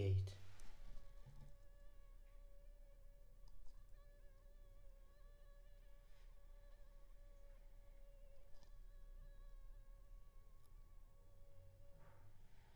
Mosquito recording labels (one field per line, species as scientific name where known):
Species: Culex pipiens complex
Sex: female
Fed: unfed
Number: one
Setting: cup